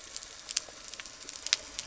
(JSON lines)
{"label": "anthrophony, boat engine", "recorder": "SoundTrap 300"}